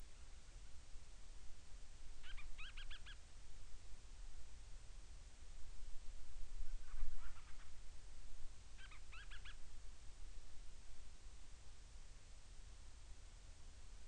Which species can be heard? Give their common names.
Band-rumped Storm-Petrel